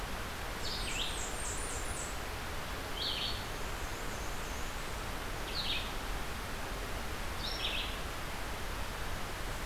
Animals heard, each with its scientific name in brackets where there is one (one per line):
Blackburnian Warbler (Setophaga fusca)
Black-and-white Warbler (Mniotilta varia)
Red-eyed Vireo (Vireo olivaceus)